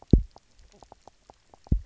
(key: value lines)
label: biophony, knock croak
recorder: SoundTrap 300